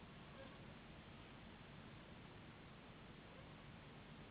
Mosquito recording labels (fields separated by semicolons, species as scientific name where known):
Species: Anopheles gambiae s.s.; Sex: female; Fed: unfed; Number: one; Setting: insect culture